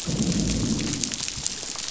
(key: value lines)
label: biophony, growl
recorder: SoundTrap 500